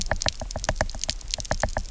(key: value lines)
label: biophony, knock
recorder: SoundTrap 300